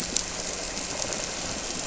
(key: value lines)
label: anthrophony, boat engine
recorder: SoundTrap 300

label: biophony
recorder: SoundTrap 300